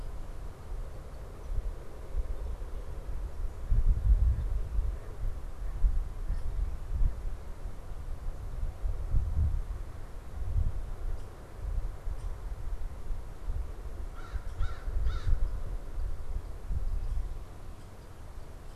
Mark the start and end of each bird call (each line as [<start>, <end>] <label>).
[14.01, 15.61] American Crow (Corvus brachyrhynchos)